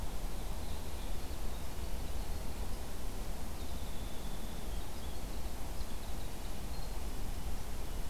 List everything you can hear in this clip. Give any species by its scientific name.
Troglodytes hiemalis, Sitta canadensis